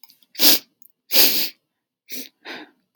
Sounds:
Sniff